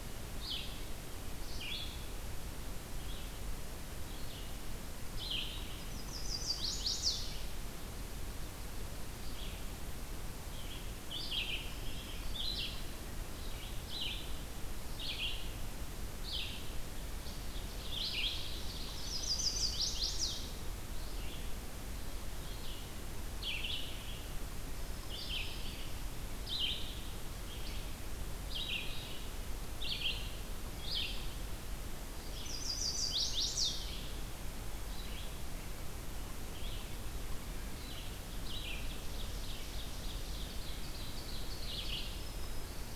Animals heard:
Red-eyed Vireo (Vireo olivaceus)
Ovenbird (Seiurus aurocapilla)
Chestnut-sided Warbler (Setophaga pensylvanica)
Black-throated Green Warbler (Setophaga virens)

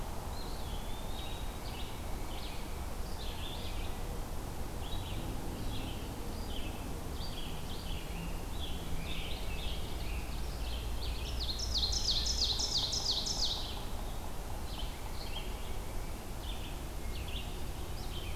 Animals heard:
Red-eyed Vireo (Vireo olivaceus)
Eastern Wood-Pewee (Contopus virens)
Ovenbird (Seiurus aurocapilla)

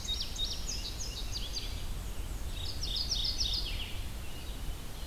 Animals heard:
Indigo Bunting (Passerina cyanea)
Black-and-white Warbler (Mniotilta varia)
Mourning Warbler (Geothlypis philadelphia)
Red-eyed Vireo (Vireo olivaceus)

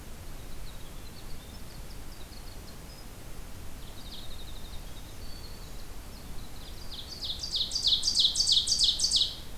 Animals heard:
Winter Wren (Troglodytes hiemalis)
Black-throated Green Warbler (Setophaga virens)
Ovenbird (Seiurus aurocapilla)

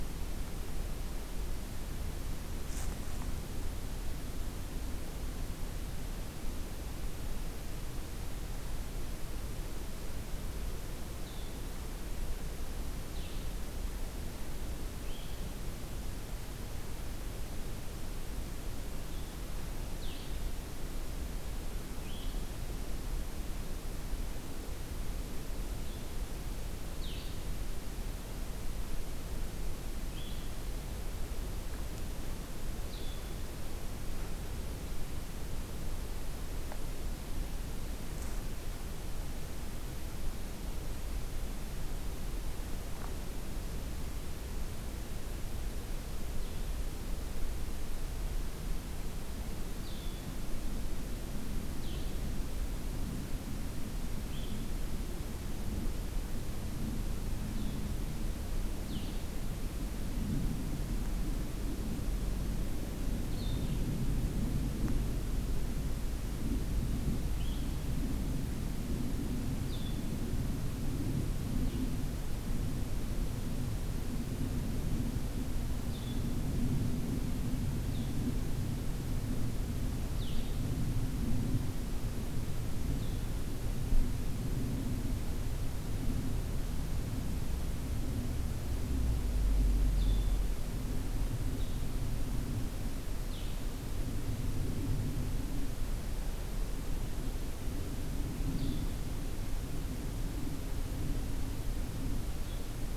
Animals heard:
Blue-headed Vireo (Vireo solitarius)

